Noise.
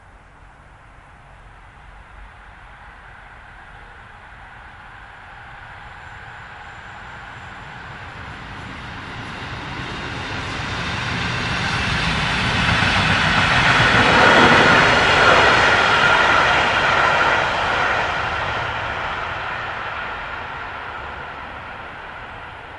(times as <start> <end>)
0.0 9.9